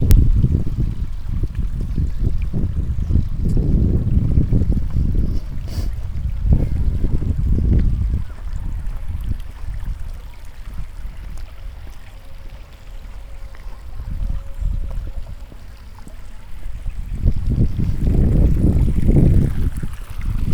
Was the recording made outside?
yes